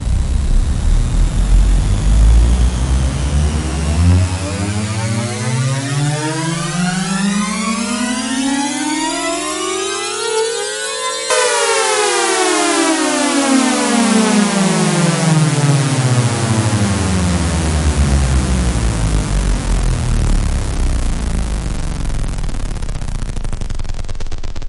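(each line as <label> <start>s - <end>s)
A hoover tone gradually increases in volume. 0.0s - 11.4s
A hoover tone gradually decreases. 11.4s - 24.7s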